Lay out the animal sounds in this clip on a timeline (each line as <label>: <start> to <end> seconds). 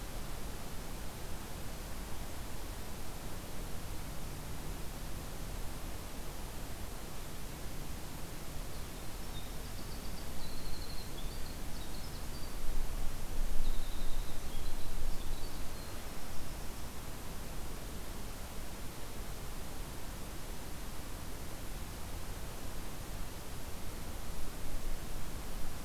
Winter Wren (Troglodytes hiemalis): 8.7 to 12.6 seconds
Winter Wren (Troglodytes hiemalis): 13.5 to 16.9 seconds